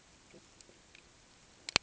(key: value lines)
label: ambient
recorder: HydroMoth